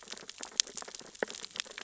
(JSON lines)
{"label": "biophony, sea urchins (Echinidae)", "recorder": "SoundTrap 600 or HydroMoth"}